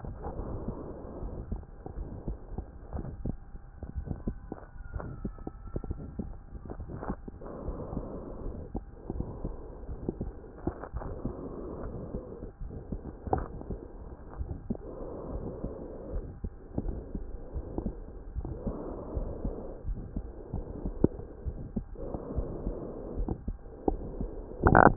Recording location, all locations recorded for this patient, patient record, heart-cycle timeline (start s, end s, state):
aortic valve (AV)
aortic valve (AV)+pulmonary valve (PV)+tricuspid valve (TV)
#Age: Child
#Sex: Female
#Height: 145.0 cm
#Weight: 39.7 kg
#Pregnancy status: False
#Murmur: Present
#Murmur locations: aortic valve (AV)+pulmonary valve (PV)
#Most audible location: pulmonary valve (PV)
#Systolic murmur timing: Early-systolic
#Systolic murmur shape: Decrescendo
#Systolic murmur grading: I/VI
#Systolic murmur pitch: Medium
#Systolic murmur quality: Harsh
#Diastolic murmur timing: nan
#Diastolic murmur shape: nan
#Diastolic murmur grading: nan
#Diastolic murmur pitch: nan
#Diastolic murmur quality: nan
#Outcome: Abnormal
#Campaign: 2015 screening campaign
0.00	0.76	unannotated
0.76	1.22	diastole
1.22	1.36	S1
1.36	1.46	systole
1.46	1.60	S2
1.60	1.96	diastole
1.96	2.11	S1
2.11	2.25	systole
2.25	2.38	S2
2.38	2.94	diastole
2.94	3.08	S1
3.08	3.24	systole
3.24	3.38	S2
3.38	3.96	diastole
3.96	4.12	S1
4.12	4.22	systole
4.22	4.36	S2
4.36	4.94	diastole
4.94	5.10	S1
5.10	5.22	systole
5.22	5.36	S2
5.36	5.88	diastole
5.88	6.02	S1
6.02	6.16	systole
6.16	6.30	S2
6.30	6.66	diastole
6.66	6.90	S1
6.90	7.08	systole
7.08	7.18	S2
7.18	7.66	diastole
7.66	7.80	S1
7.80	7.90	systole
7.90	8.04	S2
8.04	8.44	diastole
8.44	8.53	S1
8.53	8.70	systole
8.70	8.80	S2
8.80	9.14	diastole
9.14	9.28	S1
9.28	9.40	systole
9.40	9.54	S2
9.54	9.87	diastole
9.87	10.02	S1
10.02	10.20	systole
10.20	10.32	S2
10.32	10.94	diastole
10.94	11.10	S1
11.10	11.24	systole
11.24	11.34	S2
11.34	11.80	diastole
11.80	11.94	S1
11.94	12.00	systole
12.00	12.10	S2
12.10	12.58	diastole
12.58	12.72	S1
12.72	12.87	systole
12.87	13.00	S2
13.00	13.34	diastole
13.34	13.50	S1
13.50	13.66	systole
13.66	13.80	S2
13.80	14.38	diastole
14.38	14.56	S1
14.56	14.64	systole
14.64	14.78	S2
14.78	15.30	diastole
15.30	15.46	S1
15.46	15.60	systole
15.60	15.72	S2
15.72	16.12	diastole
16.12	16.26	S1
16.26	16.41	systole
16.41	16.51	S2
16.51	16.86	diastole
16.86	17.04	S1
17.04	17.12	systole
17.12	17.22	S2
17.22	17.54	diastole
17.54	17.65	S1
17.65	17.84	systole
17.84	17.98	S2
17.98	18.36	diastole
18.36	18.48	S1
18.48	18.64	systole
18.64	18.76	S2
18.76	19.14	diastole
19.14	19.28	S1
19.28	19.43	systole
19.43	19.53	S2
19.53	19.86	diastole
19.86	20.02	S1
20.02	20.14	systole
20.14	20.30	S2
20.30	20.50	diastole
20.50	20.63	S1
20.63	20.84	systole
20.84	20.92	S2
20.92	21.44	diastole
21.44	21.55	S1
21.55	21.74	systole
21.74	21.88	S2
21.88	22.13	diastole
22.13	24.96	unannotated